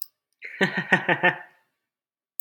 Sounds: Laughter